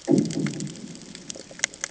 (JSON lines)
{"label": "anthrophony, bomb", "recorder": "HydroMoth"}